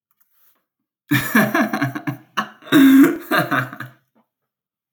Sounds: Laughter